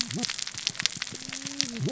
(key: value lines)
label: biophony, cascading saw
recorder: SoundTrap 600 or HydroMoth